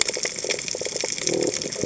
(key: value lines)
label: biophony
recorder: HydroMoth